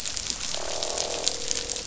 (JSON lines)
{"label": "biophony, croak", "recorder": "SoundTrap 500"}